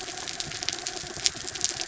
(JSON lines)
{"label": "anthrophony, mechanical", "recorder": "SoundTrap 300"}